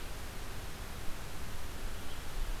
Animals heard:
forest ambience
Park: Marsh-Billings-Rockefeller National Historical Park